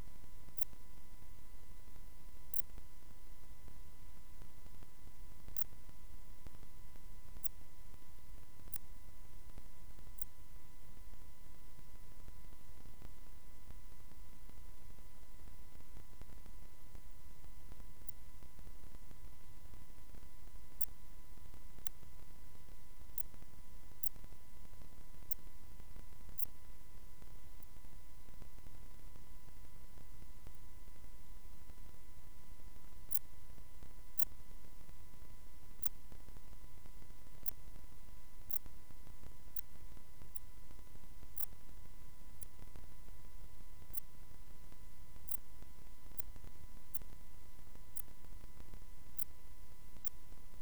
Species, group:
Pholidoptera griseoaptera, Orthoptera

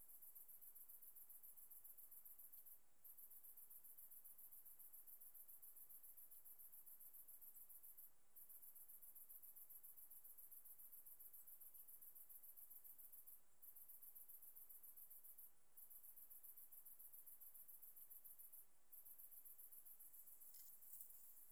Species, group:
Leptophyes punctatissima, Orthoptera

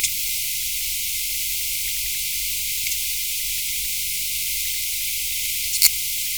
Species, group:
Poecilimon jonicus, Orthoptera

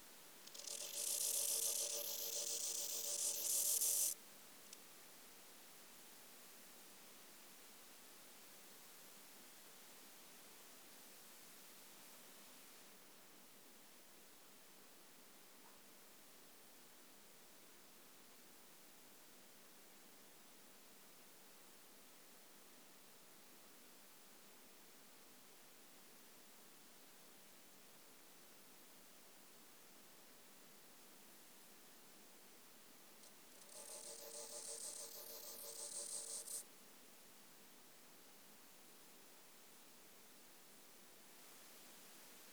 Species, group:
Chorthippus biguttulus, Orthoptera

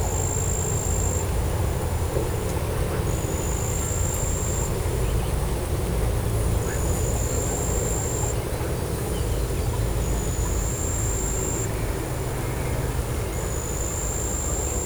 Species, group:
Pteronemobius heydenii, Orthoptera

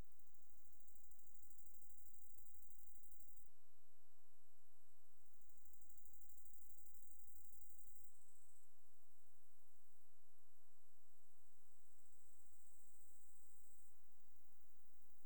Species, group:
Chorthippus biguttulus, Orthoptera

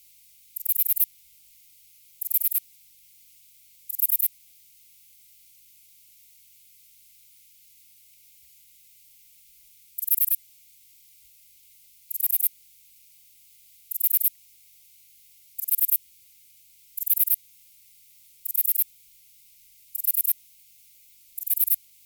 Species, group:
Ephippiger diurnus, Orthoptera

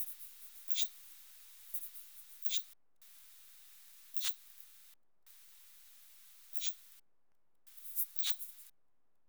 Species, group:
Odontura macphersoni, Orthoptera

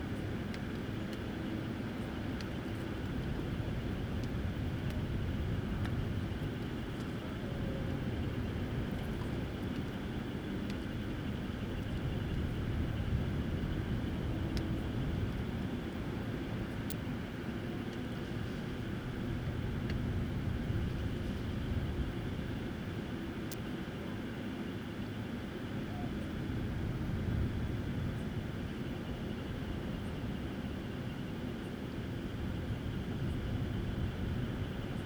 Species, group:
Leptophyes punctatissima, Orthoptera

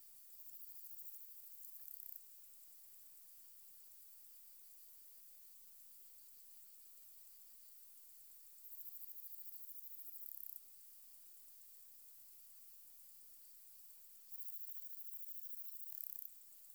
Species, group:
Poecilimon jonicus, Orthoptera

